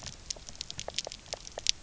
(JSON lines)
{"label": "biophony, pulse", "recorder": "SoundTrap 300"}